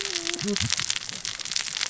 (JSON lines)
{"label": "biophony, cascading saw", "recorder": "SoundTrap 600 or HydroMoth"}